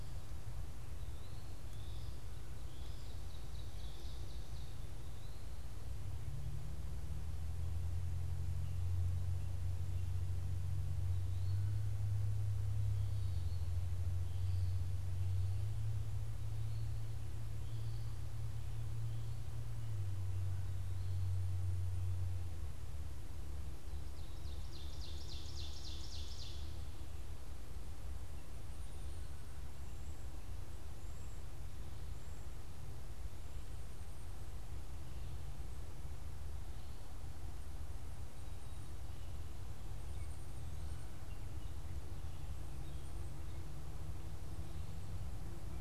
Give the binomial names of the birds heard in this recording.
Contopus virens, Vireo olivaceus, Seiurus aurocapilla, Poecile atricapillus